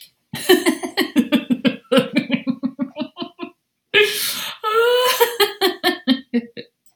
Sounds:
Laughter